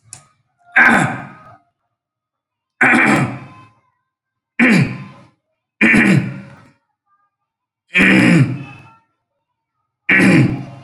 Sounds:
Throat clearing